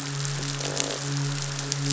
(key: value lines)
label: biophony, croak
recorder: SoundTrap 500

label: biophony, midshipman
recorder: SoundTrap 500